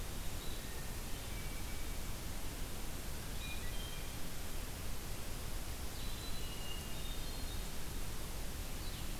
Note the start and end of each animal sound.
0.0s-9.2s: Blue-headed Vireo (Vireo solitarius)
0.6s-2.1s: Hermit Thrush (Catharus guttatus)
3.1s-4.4s: Hermit Thrush (Catharus guttatus)
5.8s-6.5s: Black-throated Green Warbler (Setophaga virens)
6.4s-7.9s: Hermit Thrush (Catharus guttatus)

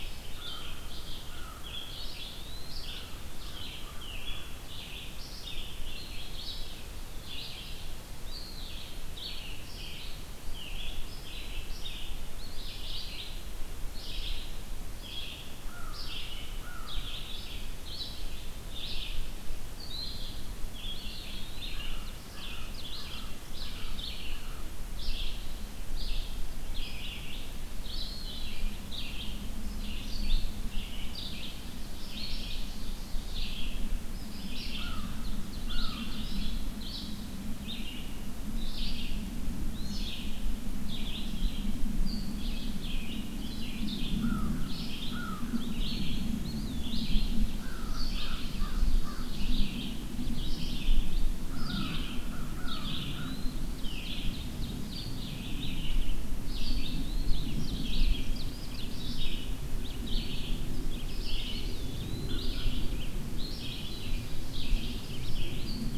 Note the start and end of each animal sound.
0.0s-46.1s: Red-eyed Vireo (Vireo olivaceus)
0.3s-4.9s: American Crow (Corvus brachyrhynchos)
2.2s-2.8s: Eastern Wood-Pewee (Contopus virens)
8.2s-9.1s: Eastern Wood-Pewee (Contopus virens)
12.3s-13.3s: Eastern Wood-Pewee (Contopus virens)
15.6s-17.3s: American Crow (Corvus brachyrhynchos)
21.7s-24.7s: American Crow (Corvus brachyrhynchos)
21.7s-24.2s: Ovenbird (Seiurus aurocapilla)
27.9s-28.7s: Eastern Wood-Pewee (Contopus virens)
31.4s-33.7s: Ovenbird (Seiurus aurocapilla)
34.7s-36.3s: American Crow (Corvus brachyrhynchos)
35.0s-36.6s: Ovenbird (Seiurus aurocapilla)
39.6s-40.3s: Eastern Wood-Pewee (Contopus virens)
44.2s-45.8s: American Crow (Corvus brachyrhynchos)
46.3s-47.2s: Eastern Wood-Pewee (Contopus virens)
47.0s-66.0s: Red-eyed Vireo (Vireo olivaceus)
47.5s-49.4s: American Crow (Corvus brachyrhynchos)
48.0s-49.7s: Ovenbird (Seiurus aurocapilla)
51.4s-53.3s: American Crow (Corvus brachyrhynchos)
53.0s-53.6s: Eastern Wood-Pewee (Contopus virens)
53.8s-55.6s: Ovenbird (Seiurus aurocapilla)
56.9s-57.8s: Eastern Wood-Pewee (Contopus virens)
57.0s-59.6s: Ovenbird (Seiurus aurocapilla)
61.2s-62.6s: Eastern Wood-Pewee (Contopus virens)
62.0s-62.7s: American Crow (Corvus brachyrhynchos)
63.4s-65.6s: Ovenbird (Seiurus aurocapilla)

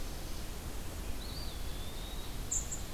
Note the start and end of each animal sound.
0.0s-2.8s: unidentified call
0.8s-2.8s: Eastern Wood-Pewee (Contopus virens)

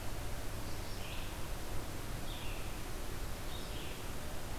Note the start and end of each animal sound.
0.7s-4.6s: Red-eyed Vireo (Vireo olivaceus)

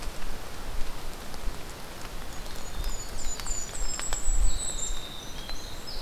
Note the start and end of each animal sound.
2.2s-6.0s: Winter Wren (Troglodytes hiemalis)
2.2s-5.2s: Golden-crowned Kinglet (Regulus satrapa)

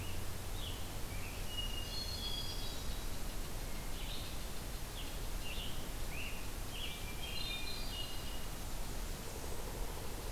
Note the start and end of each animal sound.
0.0s-1.5s: Scarlet Tanager (Piranga olivacea)
1.1s-2.8s: Hermit Thrush (Catharus guttatus)
2.7s-4.8s: unknown mammal
3.8s-4.5s: Red-eyed Vireo (Vireo olivaceus)
4.9s-7.6s: Scarlet Tanager (Piranga olivacea)
6.9s-8.6s: Hermit Thrush (Catharus guttatus)

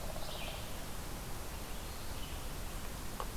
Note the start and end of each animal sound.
0.0s-3.4s: Red-eyed Vireo (Vireo olivaceus)

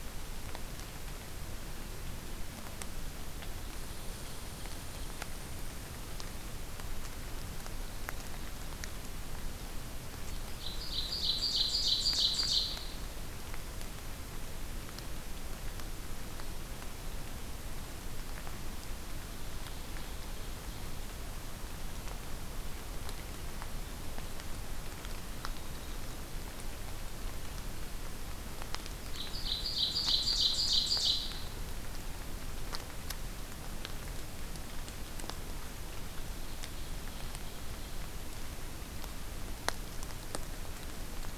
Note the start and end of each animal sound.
3.6s-6.0s: Red Squirrel (Tamiasciurus hudsonicus)
10.1s-13.0s: Ovenbird (Seiurus aurocapilla)
19.2s-21.0s: Ovenbird (Seiurus aurocapilla)
29.0s-31.4s: Ovenbird (Seiurus aurocapilla)
36.1s-38.1s: Ovenbird (Seiurus aurocapilla)

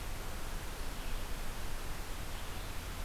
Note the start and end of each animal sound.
0.0s-3.0s: Red-eyed Vireo (Vireo olivaceus)

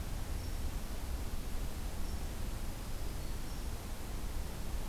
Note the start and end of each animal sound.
2.5s-3.6s: Black-throated Green Warbler (Setophaga virens)

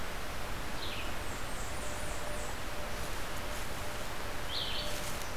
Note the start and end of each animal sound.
0.0s-5.4s: Red-eyed Vireo (Vireo olivaceus)
1.0s-2.7s: Blackburnian Warbler (Setophaga fusca)

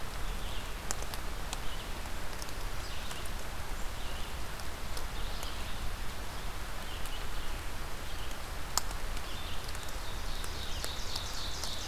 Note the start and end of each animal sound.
0.0s-10.9s: Red-eyed Vireo (Vireo olivaceus)
9.5s-11.9s: Ovenbird (Seiurus aurocapilla)

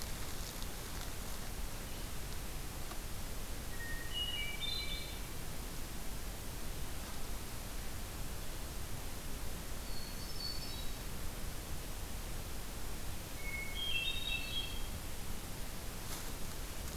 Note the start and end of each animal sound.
3.5s-5.4s: Hermit Thrush (Catharus guttatus)
9.8s-11.2s: Hermit Thrush (Catharus guttatus)
13.2s-15.0s: Hermit Thrush (Catharus guttatus)

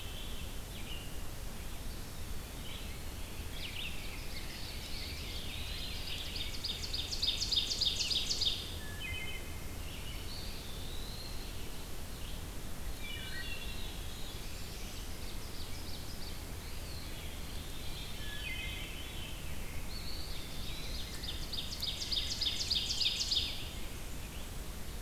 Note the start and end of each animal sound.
0.0s-0.7s: Veery (Catharus fuscescens)
0.0s-25.0s: Red-eyed Vireo (Vireo olivaceus)
2.0s-3.4s: Eastern Wood-Pewee (Contopus virens)
2.6s-6.6s: Rose-breasted Grosbeak (Pheucticus ludovicianus)
3.5s-8.8s: Ovenbird (Seiurus aurocapilla)
4.8s-6.0s: Eastern Wood-Pewee (Contopus virens)
4.9s-6.6s: Veery (Catharus fuscescens)
8.7s-9.8s: Wood Thrush (Hylocichla mustelina)
10.2s-11.8s: Eastern Wood-Pewee (Contopus virens)
10.3s-11.9s: Ovenbird (Seiurus aurocapilla)
12.8s-14.6s: Veery (Catharus fuscescens)
13.0s-13.8s: Wood Thrush (Hylocichla mustelina)
13.1s-14.0s: Eastern Wood-Pewee (Contopus virens)
14.1s-15.3s: Blackburnian Warbler (Setophaga fusca)
14.6s-16.5s: Ovenbird (Seiurus aurocapilla)
16.5s-17.5s: Eastern Wood-Pewee (Contopus virens)
17.4s-19.7s: Veery (Catharus fuscescens)
17.9s-19.1s: Wood Thrush (Hylocichla mustelina)
19.8s-21.0s: Eastern Wood-Pewee (Contopus virens)
20.1s-21.1s: Black-throated Blue Warbler (Setophaga caerulescens)
20.8s-23.8s: Ovenbird (Seiurus aurocapilla)
23.5s-24.7s: Blackburnian Warbler (Setophaga fusca)

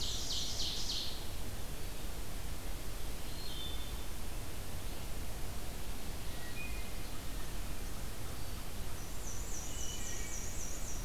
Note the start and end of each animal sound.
0.0s-1.3s: Ovenbird (Seiurus aurocapilla)
3.1s-4.0s: Wood Thrush (Hylocichla mustelina)
6.2s-7.0s: Wood Thrush (Hylocichla mustelina)
9.1s-11.0s: Black-and-white Warbler (Mniotilta varia)
9.6s-10.4s: Wood Thrush (Hylocichla mustelina)

